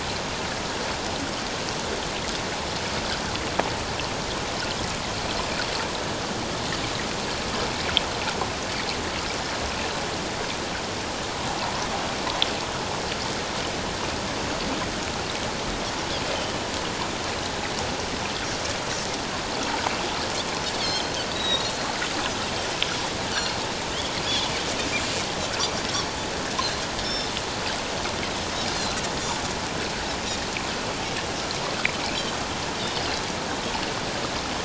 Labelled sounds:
20.8	21.7	Pacific white-sided dolphin, 3.0 to 4.0 kHz
23.3	23.6	Pacific white-sided dolphin, 4.1 to 4.6 kHz
27.0	27.3	Pacific white-sided dolphin, 5.2 to 5.5 kHz
28.7	29.0	Pacific white-sided dolphin, 4.0 to 4.4 kHz

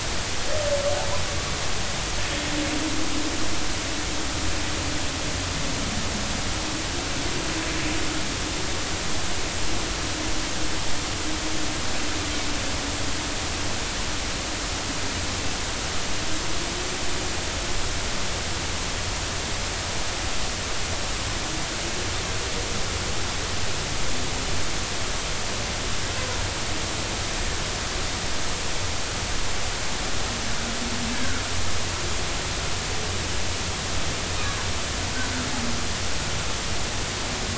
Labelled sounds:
31.1	31.4	humpback whale, 1.3 to 1.8 kHz

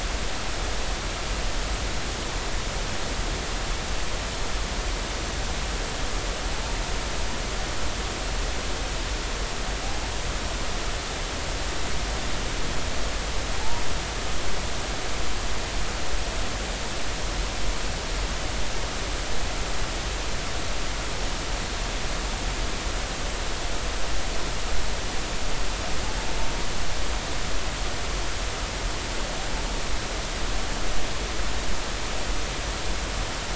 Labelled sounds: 9.8	10.1	humpback whale, 0.80 to 0.93 kHz

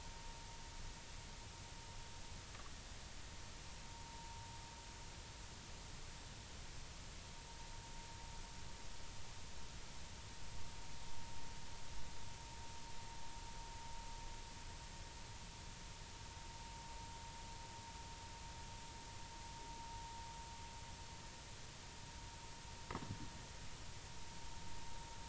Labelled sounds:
3.9	4.4	vessel noise, 0.86 to 0.99 kHz

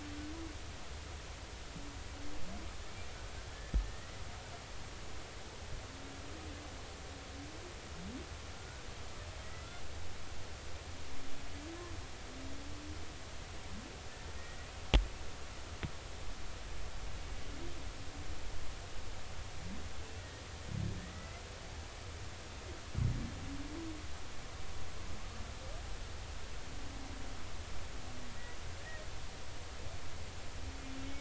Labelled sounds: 3.5	4.2	humpback whale, 1.7 to 2.0 kHz
20.2	21.4	humpback whale, 1.2 to 2.0 kHz

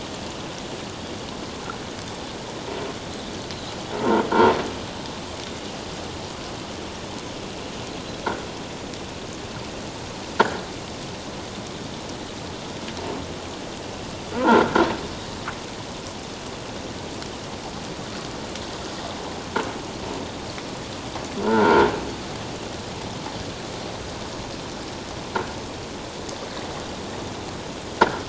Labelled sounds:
4.0	4.2	croaking sound likely from a nearby submerged object, 0.88 to 1.5 kHz
14.3	14.7	croaking sound likely from a nearby submerged object, 0.84 to 1.7 kHz
21.4	21.9	croaking sound likely from a nearby submerged object, 0.84 to 1.6 kHz
28.0	28.2	croaking sound likely from a nearby submerged object, 1.2 to 1.8 kHz

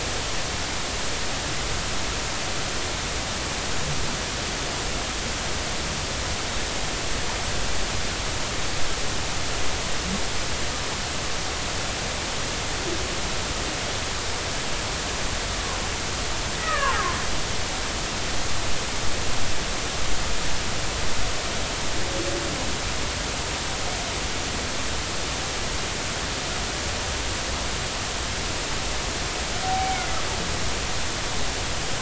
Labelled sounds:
16.6	17.2	humpback whale, 0.80 to 2.0 kHz
29.6	30.0	humpback whale, 0.80 to 0.83 kHz

